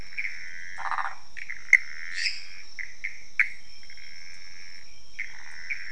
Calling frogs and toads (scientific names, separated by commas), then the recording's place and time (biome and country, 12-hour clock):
Pithecopus azureus, Phyllomedusa sauvagii, Dendropsophus minutus
Cerrado, Brazil, 3:15am